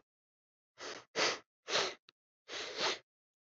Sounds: Sniff